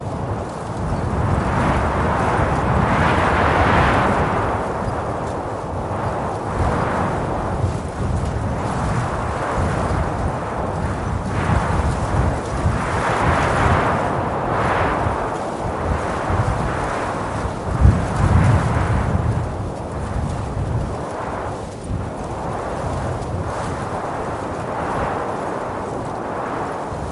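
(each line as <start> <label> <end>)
0.0 Repeated dull gusts of wind blowing through bushes. 27.1
0.7 Creaking of a swing. 2.1
4.8 Quiet repetitive creaking of a swing with pauses. 8.3
9.9 Creaking of a swing. 10.9
11.3 Birds chirping quietly in the distance. 13.9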